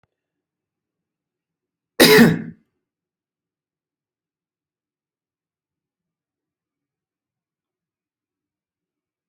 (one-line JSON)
{"expert_labels": [{"quality": "good", "cough_type": "dry", "dyspnea": false, "wheezing": false, "stridor": false, "choking": false, "congestion": false, "nothing": true, "diagnosis": "healthy cough", "severity": "pseudocough/healthy cough"}], "gender": "female", "respiratory_condition": false, "fever_muscle_pain": false, "status": "healthy"}